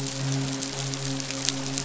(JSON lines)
{"label": "biophony, midshipman", "recorder": "SoundTrap 500"}